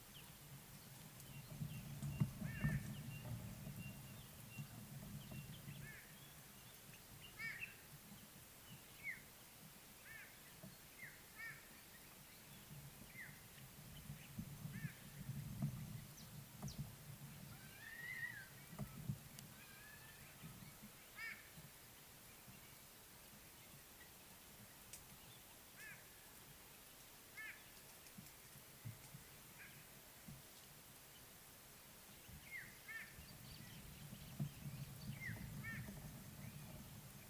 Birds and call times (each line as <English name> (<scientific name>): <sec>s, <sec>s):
White-bellied Go-away-bird (Corythaixoides leucogaster): 7.4s, 32.9s
African Black-headed Oriole (Oriolus larvatus): 9.1s, 32.5s